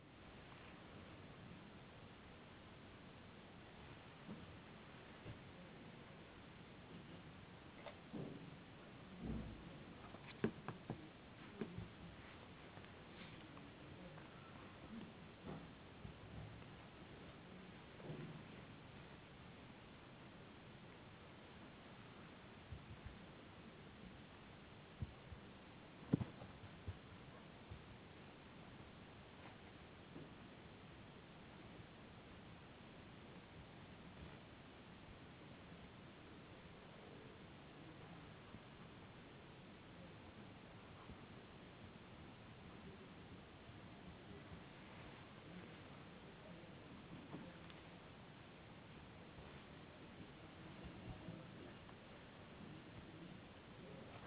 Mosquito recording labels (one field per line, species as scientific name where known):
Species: no mosquito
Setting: insect culture